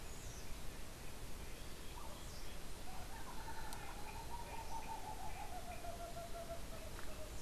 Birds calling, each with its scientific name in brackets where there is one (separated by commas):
Tropical Screech-Owl (Megascops choliba)